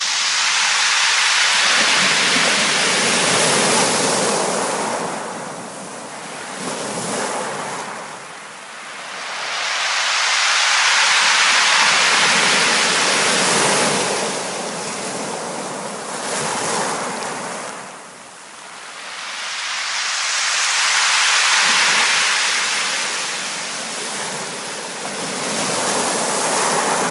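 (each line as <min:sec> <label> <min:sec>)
0:00.0 A wave rolls toward the shore with a steady swishing sound. 0:05.9
0:05.9 A wave crashes forcefully against the shore. 0:08.6
0:08.6 A wave rolls toward the shore with a steady swishing sound. 0:15.4
0:15.4 A wave crashes forcefully against the shore. 0:18.5
0:18.5 A wave rolls toward the shore with a steady swishing sound. 0:24.7
0:24.7 A wave crashes forcefully against the shore. 0:27.1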